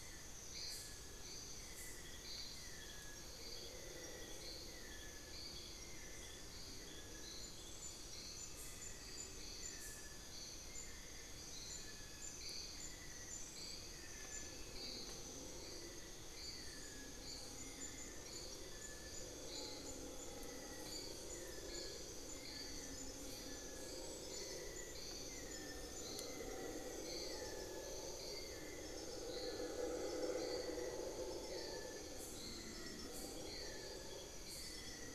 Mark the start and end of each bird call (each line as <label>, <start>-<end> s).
Amazonian Pygmy-Owl (Glaucidium hardyi), 7.8-11.2 s
unidentified bird, 16.9-18.9 s
unidentified bird, 19.2-21.9 s